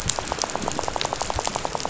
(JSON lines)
{"label": "biophony, rattle", "recorder": "SoundTrap 500"}